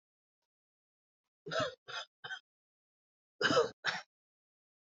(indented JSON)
{
  "expert_labels": [
    {
      "quality": "ok",
      "cough_type": "dry",
      "dyspnea": false,
      "wheezing": false,
      "stridor": false,
      "choking": false,
      "congestion": false,
      "nothing": true,
      "diagnosis": "upper respiratory tract infection",
      "severity": "mild"
    }
  ],
  "age": 25,
  "gender": "male",
  "respiratory_condition": false,
  "fever_muscle_pain": false,
  "status": "COVID-19"
}